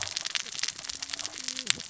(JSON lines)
{"label": "biophony, cascading saw", "recorder": "SoundTrap 600 or HydroMoth"}